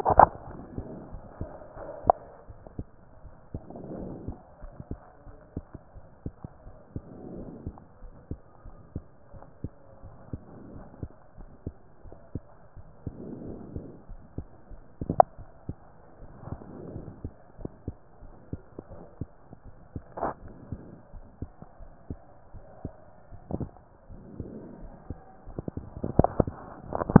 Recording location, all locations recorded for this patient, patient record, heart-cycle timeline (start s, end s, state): aortic valve (AV)
aortic valve (AV)+pulmonary valve (PV)+tricuspid valve (TV)+mitral valve (MV)
#Age: Child
#Sex: Female
#Height: 123.0 cm
#Weight: 31.2 kg
#Pregnancy status: False
#Murmur: Absent
#Murmur locations: nan
#Most audible location: nan
#Systolic murmur timing: nan
#Systolic murmur shape: nan
#Systolic murmur grading: nan
#Systolic murmur pitch: nan
#Systolic murmur quality: nan
#Diastolic murmur timing: nan
#Diastolic murmur shape: nan
#Diastolic murmur grading: nan
#Diastolic murmur pitch: nan
#Diastolic murmur quality: nan
#Outcome: Normal
#Campaign: 2015 screening campaign
0.00	1.72	unannotated
1.72	1.90	S1
1.90	2.02	systole
2.02	2.14	S2
2.14	2.48	diastole
2.48	2.62	S1
2.62	2.76	systole
2.76	2.86	S2
2.86	3.24	diastole
3.24	3.38	S1
3.38	3.54	systole
3.54	3.64	S2
3.64	3.98	diastole
3.98	4.13	S1
4.13	4.22	systole
4.22	4.36	S2
4.36	4.61	diastole
4.61	4.78	S1
4.78	4.88	systole
4.88	4.98	S2
4.98	5.25	diastole
5.25	5.42	S1
5.42	5.53	systole
5.53	5.66	S2
5.66	5.94	diastole
5.94	6.08	S1
6.08	6.22	systole
6.22	6.34	S2
6.34	6.62	diastole
6.62	6.78	S1
6.78	6.92	systole
6.92	7.04	S2
7.04	7.34	diastole
7.34	7.50	S1
7.50	7.62	systole
7.62	7.76	S2
7.76	8.02	diastole
8.02	8.16	S1
8.16	8.28	systole
8.28	8.38	S2
8.38	8.64	diastole
8.64	8.79	S1
8.79	8.94	systole
8.94	9.04	S2
9.04	9.31	diastole
9.31	9.48	S1
9.48	9.60	systole
9.60	9.70	S2
9.70	10.02	diastole
10.02	10.16	S1
10.16	10.32	systole
10.32	10.42	S2
10.42	10.72	diastole
10.72	10.86	S1
10.86	10.98	systole
10.98	11.10	S2
11.10	11.37	diastole
11.37	11.54	S1
11.54	11.64	systole
11.64	11.76	S2
11.76	12.04	diastole
12.04	12.18	S1
12.18	12.34	systole
12.34	12.42	S2
12.42	12.75	diastole
12.75	12.87	S1
12.87	13.02	systole
13.02	13.14	S2
13.14	13.43	diastole
13.43	13.64	S1
13.64	13.74	systole
13.74	13.90	S2
13.90	27.20	unannotated